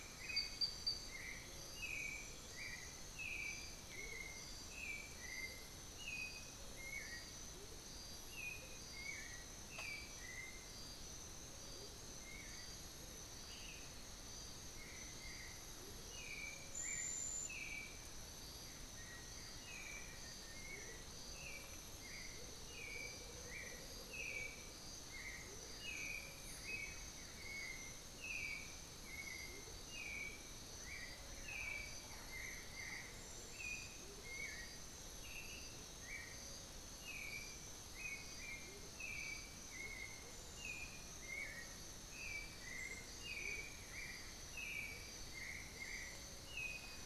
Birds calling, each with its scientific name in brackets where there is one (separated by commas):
unidentified bird, Black-faced Antthrush (Formicarius analis), Blue-gray Saltator (Saltator coerulescens), Black-billed Thrush (Turdus ignobilis), Undulated Tinamou (Crypturellus undulatus), Amazonian Motmot (Momotus momota)